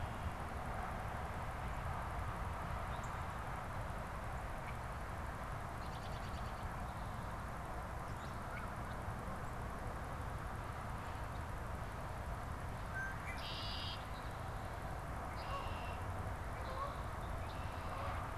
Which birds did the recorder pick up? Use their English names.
Northern Cardinal, unidentified bird, American Robin, Red-winged Blackbird, Canada Goose